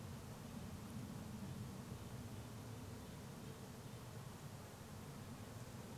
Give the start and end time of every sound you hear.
0s-6s: airplane

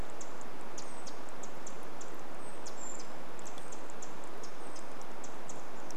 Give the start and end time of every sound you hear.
0s-6s: Brown Creeper call
0s-6s: Pacific Wren call

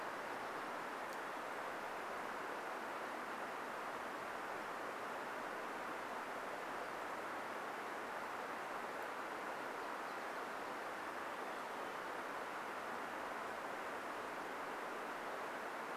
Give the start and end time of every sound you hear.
8s-12s: Nashville Warbler song
10s-12s: Olive-sided Flycatcher song

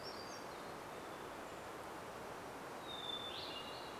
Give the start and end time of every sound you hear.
0s-2s: Golden-crowned Kinglet call
0s-4s: Hermit Thrush song

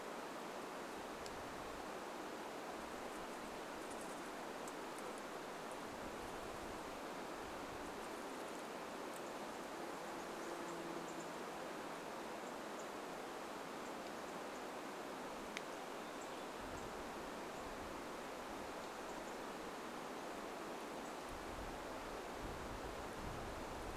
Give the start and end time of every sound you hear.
10s-22s: unidentified bird chip note

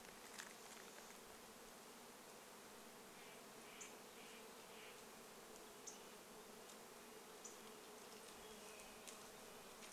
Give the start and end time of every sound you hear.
0s-10s: insect buzz
2s-6s: Steller's Jay call
2s-8s: unidentified bird chip note
6s-8s: Red-breasted Nuthatch song
8s-10s: unidentified sound

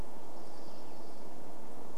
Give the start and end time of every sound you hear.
0s-2s: Western Tanager song
0s-2s: unidentified sound

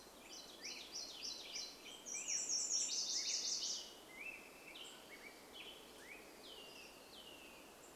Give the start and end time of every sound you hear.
0s-2s: warbler song
0s-8s: Black-headed Grosbeak song
2s-4s: Nashville Warbler song
6s-8s: unidentified sound

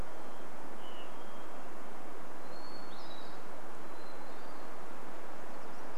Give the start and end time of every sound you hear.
0s-6s: Hermit Thrush song

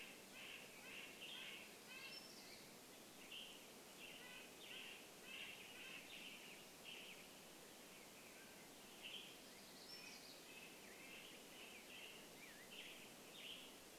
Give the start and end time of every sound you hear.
0s-6s: Red-breasted Nuthatch song
0s-10s: Western Tanager song
2s-4s: unidentified sound
8s-10s: Mountain Quail call
8s-12s: unidentified sound
10s-12s: Red-breasted Nuthatch song
10s-14s: Black-headed Grosbeak song
12s-14s: Western Tanager song

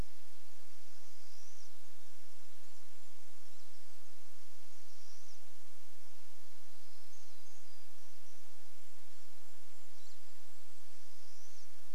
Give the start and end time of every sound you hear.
0s-2s: Pine Siskin call
0s-12s: Pine Siskin song
2s-4s: Golden-crowned Kinglet song
4s-8s: Pine Siskin call
6s-8s: warbler song
8s-12s: Golden-crowned Kinglet song
10s-12s: Pine Siskin call

